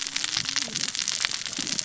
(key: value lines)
label: biophony, cascading saw
recorder: SoundTrap 600 or HydroMoth